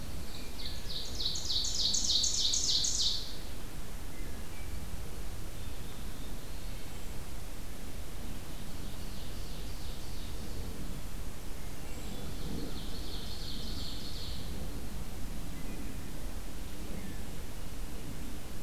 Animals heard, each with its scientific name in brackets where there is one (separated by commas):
Tufted Titmouse (Baeolophus bicolor), Wood Thrush (Hylocichla mustelina), Ovenbird (Seiurus aurocapilla)